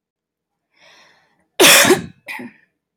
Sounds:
Cough